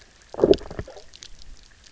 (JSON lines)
{"label": "biophony", "recorder": "SoundTrap 300"}